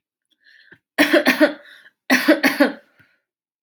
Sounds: Cough